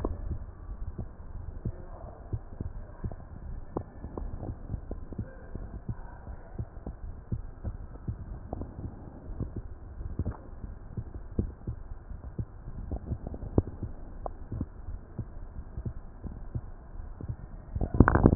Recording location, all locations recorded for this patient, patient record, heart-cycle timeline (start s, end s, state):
aortic valve (AV)
aortic valve (AV)+pulmonary valve (PV)+tricuspid valve (TV)
#Age: nan
#Sex: Female
#Height: nan
#Weight: nan
#Pregnancy status: True
#Murmur: Absent
#Murmur locations: nan
#Most audible location: nan
#Systolic murmur timing: nan
#Systolic murmur shape: nan
#Systolic murmur grading: nan
#Systolic murmur pitch: nan
#Systolic murmur quality: nan
#Diastolic murmur timing: nan
#Diastolic murmur shape: nan
#Diastolic murmur grading: nan
#Diastolic murmur pitch: nan
#Diastolic murmur quality: nan
#Outcome: Normal
#Campaign: 2015 screening campaign
0.00	0.38	unannotated
0.38	0.80	diastole
0.80	0.92	S1
0.92	0.96	systole
0.96	1.06	S2
1.06	1.42	diastole
1.42	1.52	S1
1.52	1.64	systole
1.64	1.76	S2
1.76	2.02	diastole
2.02	2.24	S1
2.24	2.32	systole
2.32	2.42	S2
2.42	2.74	diastole
2.74	2.86	S1
2.86	3.00	systole
3.00	3.12	S2
3.12	3.48	diastole
3.48	3.62	S1
3.62	3.72	systole
3.72	3.84	S2
3.84	4.18	diastole
4.18	4.32	S1
4.32	4.44	systole
4.44	4.56	S2
4.56	4.90	diastole
4.90	5.04	S1
5.04	5.16	systole
5.16	5.26	S2
5.26	5.68	diastole
5.68	5.80	S1
5.80	5.88	systole
5.88	5.98	S2
5.98	6.26	diastole
6.26	6.38	S1
6.38	6.54	systole
6.54	6.66	S2
6.66	7.04	diastole
7.04	7.16	S1
7.16	7.28	systole
7.28	7.42	S2
7.42	7.84	diastole
7.84	7.94	S1
7.94	8.06	systole
8.06	8.18	S2
8.18	8.58	diastole
8.58	8.70	S1
8.70	8.80	systole
8.80	8.92	S2
8.92	9.30	diastole
9.30	9.48	S1
9.48	9.54	systole
9.54	9.64	S2
9.64	10.00	diastole
10.00	10.16	S1
10.16	10.20	systole
10.20	10.34	S2
10.34	10.74	diastole
10.74	10.86	S1
10.86	10.96	systole
10.96	11.04	S2
11.04	11.38	diastole
11.38	11.54	S1
11.54	11.66	systole
11.66	11.78	S2
11.78	12.20	diastole
12.20	12.32	S1
12.32	12.40	systole
12.40	12.46	S2
12.46	12.86	diastole
12.86	13.00	S1
13.00	13.10	systole
13.10	13.20	S2
13.20	13.54	diastole
13.54	18.35	unannotated